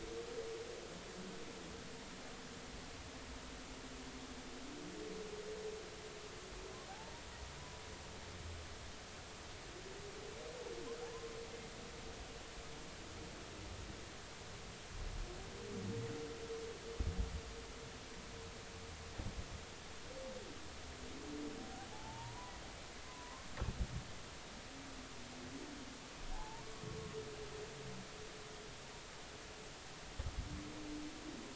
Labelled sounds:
6.9	7.1	humpback whale, 0.80 to 0.96 kHz
21.9	22.5	humpback whale, 0.80 to 1.1 kHz
23.1	23.5	humpback whale, 0.90 to 1.2 kHz
26.3	26.8	humpback whale, 0.80 to 1.2 kHz

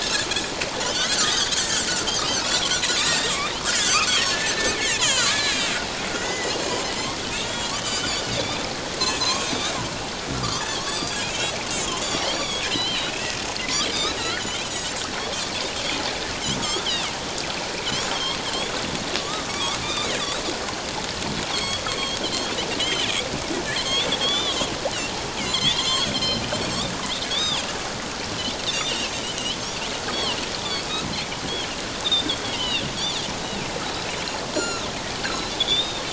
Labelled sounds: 0.8	1.6	Pacific white-sided dolphin, 1.1 to 3.9 kHz
2.4	4.0	Pacific white-sided dolphin, 1.7 to 7.7 kHz
4.3	6.5	Pacific white-sided dolphin, 1.3 to 4.5 kHz
7.3	8.7	Pacific white-sided dolphin, 2.9 to 7.2 kHz
9.2	9.8	Pacific white-sided dolphin, 0.94 to 7.4 kHz
10.9	12.0	Pacific white-sided dolphin, 2.4 to 7.3 kHz
12.3	13.3	Pacific white-sided dolphin, 2.5 to 7.0 kHz
14.4	14.9	Pacific white-sided dolphin, 2.9 to 6.9 kHz
16.6	16.9	Pacific white-sided dolphin, 1.1 to 3.7 kHz
18.1	18.7	Pacific white-sided dolphin, 1.0 to 3.6 kHz
19.2	20.4	Pacific white-sided dolphin, 1.1 to 4.2 kHz
21.5	22.5	Pacific white-sided dolphin, 2.9 to 7.8 kHz
22.8	23.3	Pacific white-sided dolphin, 2.1 to 3.2 kHz
23.8	24.7	Pacific white-sided dolphin, 1.1 to 4.1 kHz
25.4	26.4	Pacific white-sided dolphin, 1.8 to 7.7 kHz
27.3	27.7	Pacific white-sided dolphin, 0.84 to 5.1 kHz
28.7	29.6	Pacific white-sided dolphin, 2.5 to 4.0 kHz
30.1	30.8	Pacific white-sided dolphin, 2.7 to 3.6 kHz
32.0	32.8	Pacific white-sided dolphin, 1.8 to 3.9 kHz
34.5	34.9	Pacific white-sided dolphin, 1.3 to 7.1 kHz
35.2	36.0	Pacific white-sided dolphin, 3.2 to 4.6 kHz

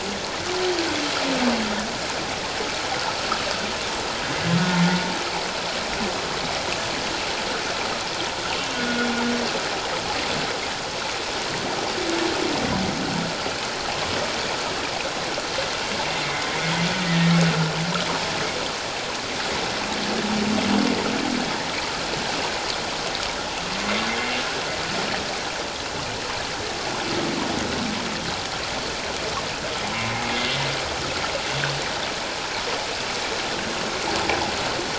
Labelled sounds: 16.2	16.5	humpback whale, 2.0 to 2.1 kHz
30.2	30.5	humpback whale, 2.0 to 2.2 kHz

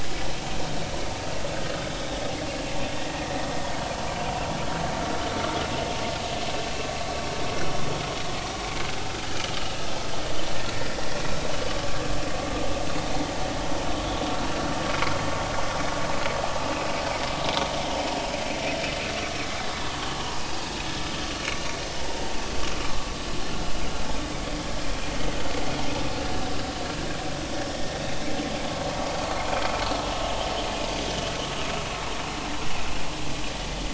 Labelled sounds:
27.7	28.0	vessel noise, 1.8 to 1.9 kHz

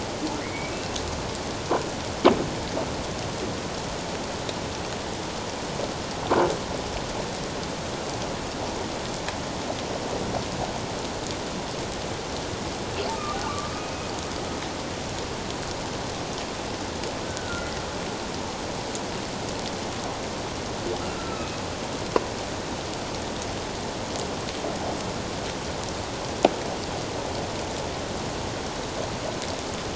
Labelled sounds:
0.4	0.8	humpback whale, 1.9 to 2.4 kHz
13.1	14.1	humpback whale, 1.1 to 2.6 kHz
17.2	17.7	humpback whale, 1.3 to 1.6 kHz
21.2	21.6	humpback whale, 1.2 to 2.7 kHz

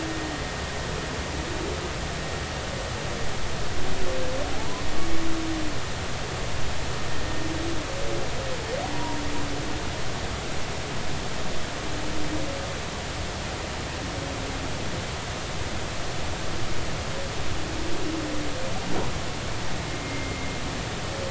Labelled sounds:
4.5	4.9	humpback whale, 0.80 to 1.1 kHz
8.9	9.2	humpback whale, 0.90 to 1.1 kHz
19.9	20.5	humpback whale, 2.0 to 2.2 kHz

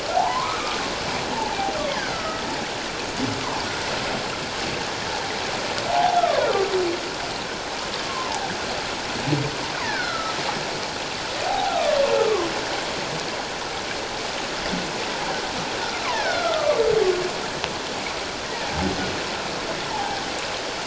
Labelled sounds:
0.1	1.6	humpback whale, 0.78 to 1.3 kHz
2.0	2.4	humpback whale, 1.2 to 2.1 kHz
5.9	6.5	humpback whale, 0.78 to 1.4 kHz
8.1	8.4	humpback whale, 0.78 to 1.1 kHz
9.8	10.4	humpback whale, 1.2 to 4.4 kHz
11.4	12.5	humpback whale, 0.78 to 1.4 kHz
16.1	16.8	humpback whale, 1.1 to 3.6 kHz
19.9	20.2	humpback whale, 0.78 to 0.97 kHz

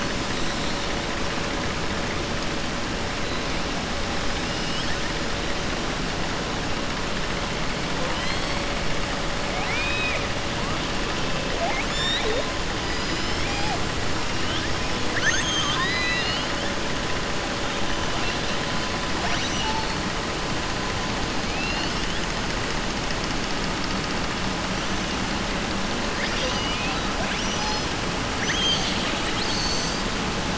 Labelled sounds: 9.5	10.2	killer whale, southern resident, 1.3 to 4.4 kHz
15.0	16.5	killer whale, southern resident, 1.1 to 7.9 kHz
19.1	19.9	killer whale, southern resident, 0.70 to 6.1 kHz

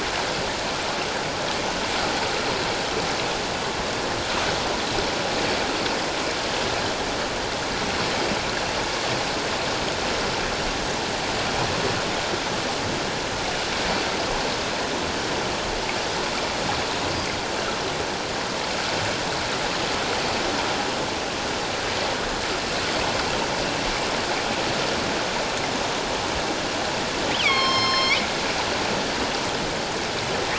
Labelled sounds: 27.3	28.3	killer whale, northern resident, A clan, AA subclan, A04 pod, call N04, 1.0 to 5.7 kHz

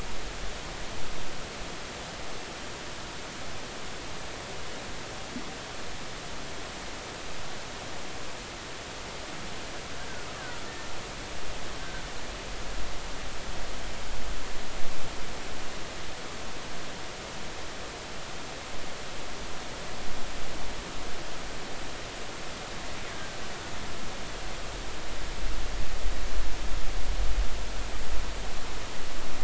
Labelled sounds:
23.1	23.4	killer whale, Bigg's (transient), 1.5 to 1.7 kHz

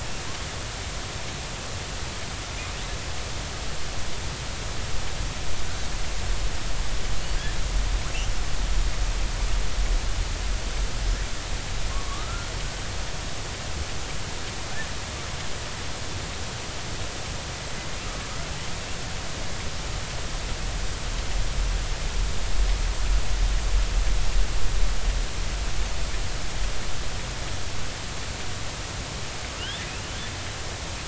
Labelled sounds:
11.9	12.5	killer whale, southern resident, J clan, 1.0 to 1.4 kHz
29.6	29.8	killer whale, southern resident, J clan, 2.7 to 3.6 kHz

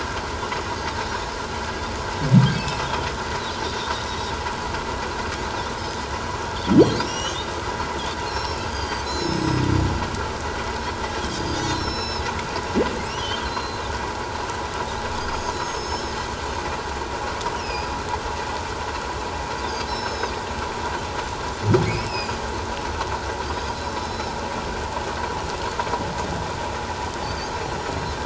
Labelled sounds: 1.1	1.3	Pacific white-sided dolphin, 5.3 to 5.8 kHz
2.5	2.8	humpback whale, 2.5 to 2.7 kHz
3.6	4.3	Pacific white-sided dolphin, 3.5 to 4.0 kHz
7.0	7.4	Pacific white-sided dolphin, 5.4 to 5.9 kHz
7.0	7.5	humpback whale, 2.6 to 3.8 kHz
8.3	9.7	Pacific white-sided dolphin, 3.8 to 7.8 kHz
11.3	12.3	Pacific white-sided dolphin, 2.5 to 6.8 kHz
13.1	13.4	humpback whale, 2.7 to 3.7 kHz
13.4	13.8	Pacific white-sided dolphin, 4.0 to 4.3 kHz
15.5	16.1	Pacific white-sided dolphin, 5.0 to 7.9 kHz
17.6	18.0	humpback whale, 2.3 to 5.3 kHz
19.9	20.3	Pacific white-sided dolphin, 3.7 to 6.7 kHz
21.8	22.4	humpback whale, 2.0 to 5.5 kHz
23.7	24.4	Pacific white-sided dolphin, 3.8 to 5.4 kHz
27.2	27.5	Pacific white-sided dolphin, 4.4 to 4.9 kHz

